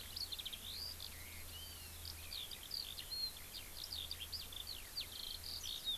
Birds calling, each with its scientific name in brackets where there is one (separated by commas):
Eurasian Skylark (Alauda arvensis)